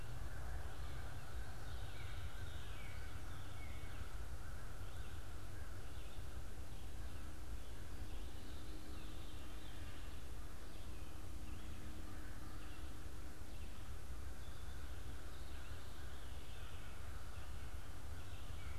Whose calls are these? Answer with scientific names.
Corvus brachyrhynchos, Cardinalis cardinalis, Catharus fuscescens